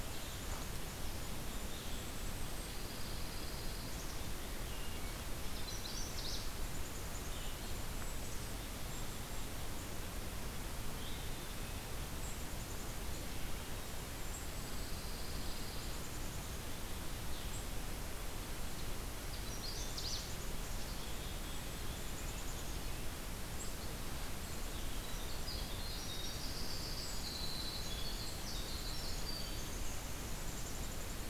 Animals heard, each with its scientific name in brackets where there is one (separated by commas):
Black-capped Chickadee (Poecile atricapillus), Golden-crowned Kinglet (Regulus satrapa), Hermit Thrush (Catharus guttatus), Magnolia Warbler (Setophaga magnolia), Red-breasted Nuthatch (Sitta canadensis), Winter Wren (Troglodytes hiemalis), Red-eyed Vireo (Vireo olivaceus), Pine Warbler (Setophaga pinus)